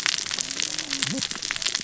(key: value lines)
label: biophony, cascading saw
recorder: SoundTrap 600 or HydroMoth